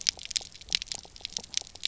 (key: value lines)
label: biophony, pulse
recorder: SoundTrap 300